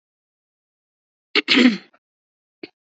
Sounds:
Throat clearing